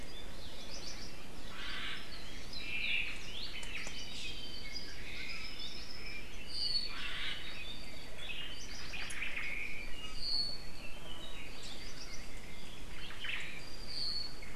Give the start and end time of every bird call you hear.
0.6s-1.2s: Hawaii Creeper (Loxops mana)
1.4s-2.1s: Omao (Myadestes obscurus)
2.5s-4.1s: Omao (Myadestes obscurus)
3.2s-3.6s: Apapane (Himatione sanguinea)
4.6s-7.1s: Apapane (Himatione sanguinea)
6.8s-7.4s: Omao (Myadestes obscurus)
7.5s-8.5s: Apapane (Himatione sanguinea)
8.5s-9.0s: Hawaii Creeper (Loxops mana)
8.9s-9.5s: Omao (Myadestes obscurus)
9.4s-10.7s: Apapane (Himatione sanguinea)
11.7s-12.3s: Hawaii Creeper (Loxops mana)
12.8s-13.5s: Omao (Myadestes obscurus)
13.5s-14.5s: Apapane (Himatione sanguinea)

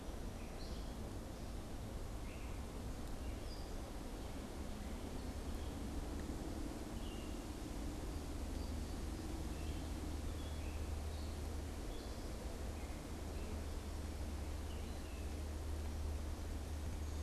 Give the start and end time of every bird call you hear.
0.4s-17.2s: Gray Catbird (Dumetella carolinensis)

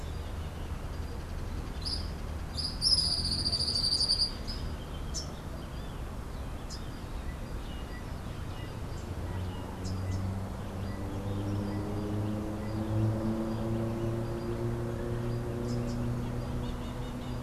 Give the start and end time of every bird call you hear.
1.6s-4.7s: Tropical Kingbird (Tyrannus melancholicus)

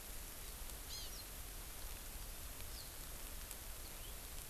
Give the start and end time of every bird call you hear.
0.9s-1.1s: Hawaii Amakihi (Chlorodrepanis virens)
3.9s-4.1s: House Finch (Haemorhous mexicanus)

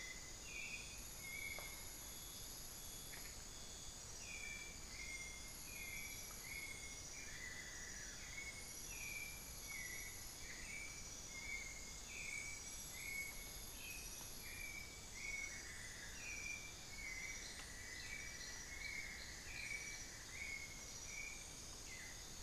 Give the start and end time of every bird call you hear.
0.0s-22.4s: White-necked Thrush (Turdus albicollis)
7.0s-8.8s: Amazonian Barred-Woodcreeper (Dendrocolaptes certhia)
15.3s-16.6s: Amazonian Barred-Woodcreeper (Dendrocolaptes certhia)
16.8s-20.6s: Cinnamon-throated Woodcreeper (Dendrexetastes rufigula)

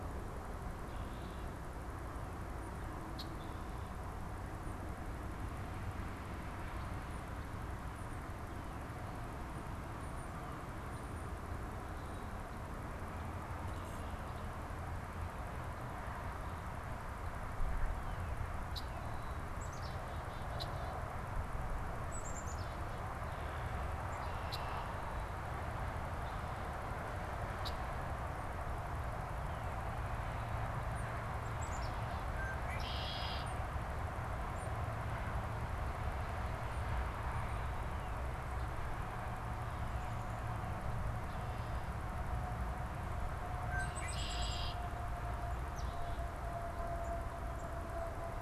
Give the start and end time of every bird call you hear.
2.9s-3.6s: Red-winged Blackbird (Agelaius phoeniceus)
18.6s-18.9s: Red-winged Blackbird (Agelaius phoeniceus)
19.3s-21.0s: Black-capped Chickadee (Poecile atricapillus)
20.4s-20.8s: Red-winged Blackbird (Agelaius phoeniceus)
22.0s-23.9s: Black-capped Chickadee (Poecile atricapillus)
23.1s-25.4s: Red-winged Blackbird (Agelaius phoeniceus)
27.5s-28.0s: Red-winged Blackbird (Agelaius phoeniceus)
29.3s-30.6s: Northern Cardinal (Cardinalis cardinalis)
31.2s-32.4s: Black-capped Chickadee (Poecile atricapillus)
32.1s-33.6s: Red-winged Blackbird (Agelaius phoeniceus)
43.5s-44.8s: Red-winged Blackbird (Agelaius phoeniceus)
43.5s-44.9s: Black-capped Chickadee (Poecile atricapillus)
45.6s-46.3s: Black-capped Chickadee (Poecile atricapillus)

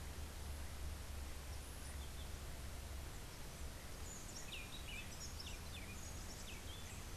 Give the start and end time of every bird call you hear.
3.9s-7.1s: Buff-throated Saltator (Saltator maximus)

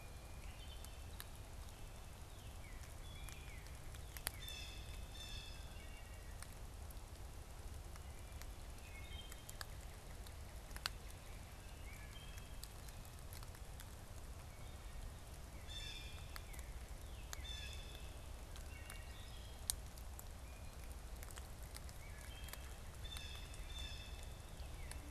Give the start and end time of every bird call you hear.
0.8s-3.9s: Northern Cardinal (Cardinalis cardinalis)
2.9s-3.9s: Wood Thrush (Hylocichla mustelina)
4.0s-5.8s: Blue Jay (Cyanocitta cristata)
5.6s-6.5s: Wood Thrush (Hylocichla mustelina)
8.6s-9.7s: Wood Thrush (Hylocichla mustelina)
11.8s-12.6s: Wood Thrush (Hylocichla mustelina)
15.4s-18.4s: Blue Jay (Cyanocitta cristata)
18.5s-19.8s: Wood Thrush (Hylocichla mustelina)
22.0s-22.9s: Wood Thrush (Hylocichla mustelina)
22.9s-24.5s: Blue Jay (Cyanocitta cristata)

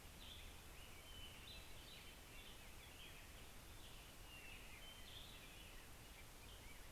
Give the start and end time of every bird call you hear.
0.0s-6.9s: American Robin (Turdus migratorius)
0.0s-6.9s: Hermit Thrush (Catharus guttatus)

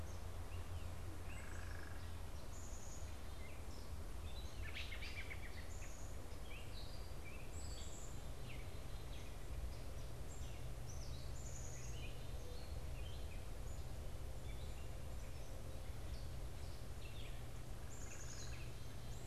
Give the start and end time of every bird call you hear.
0.0s-3.3s: Black-capped Chickadee (Poecile atricapillus)
0.0s-19.3s: Gray Catbird (Dumetella carolinensis)
1.2s-2.1s: unidentified bird
4.6s-5.9s: American Robin (Turdus migratorius)
5.4s-19.1s: Black-capped Chickadee (Poecile atricapillus)
17.9s-18.7s: unidentified bird

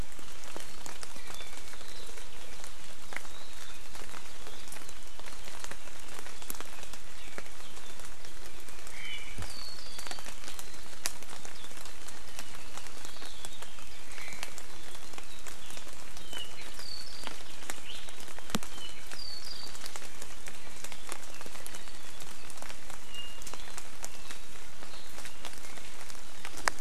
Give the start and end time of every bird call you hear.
8.9s-9.4s: Omao (Myadestes obscurus)
9.4s-10.3s: Apapane (Himatione sanguinea)
14.1s-14.5s: Omao (Myadestes obscurus)
16.7s-17.3s: Apapane (Himatione sanguinea)

